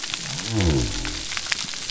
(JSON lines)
{"label": "biophony", "recorder": "SoundTrap 300"}